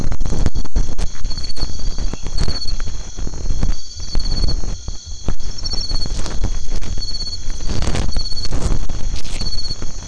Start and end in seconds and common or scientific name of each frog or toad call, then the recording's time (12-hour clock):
2.0	2.8	white-edged tree frog
8:00pm